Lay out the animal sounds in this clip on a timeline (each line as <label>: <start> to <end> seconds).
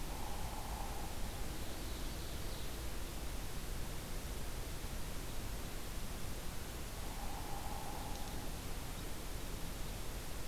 Hairy Woodpecker (Dryobates villosus): 0.0 to 1.2 seconds
Ovenbird (Seiurus aurocapilla): 1.2 to 2.8 seconds
Hairy Woodpecker (Dryobates villosus): 6.9 to 8.5 seconds